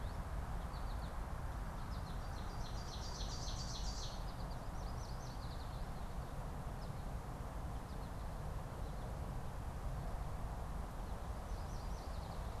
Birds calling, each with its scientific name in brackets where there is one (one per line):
Ovenbird (Seiurus aurocapilla)
American Goldfinch (Spinus tristis)
Yellow Warbler (Setophaga petechia)